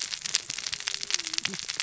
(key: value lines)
label: biophony, cascading saw
recorder: SoundTrap 600 or HydroMoth